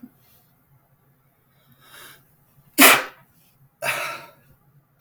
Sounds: Sneeze